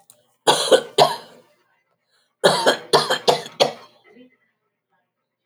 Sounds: Cough